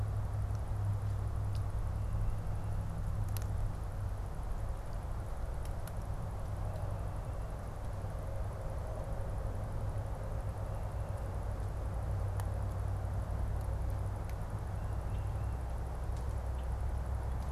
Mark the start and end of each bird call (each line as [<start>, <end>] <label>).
[14.59, 15.59] Tufted Titmouse (Baeolophus bicolor)